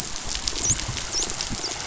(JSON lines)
{"label": "biophony, dolphin", "recorder": "SoundTrap 500"}
{"label": "biophony", "recorder": "SoundTrap 500"}